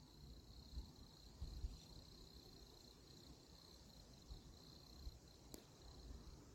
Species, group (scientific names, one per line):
Nemobius sylvestris
Orthoptera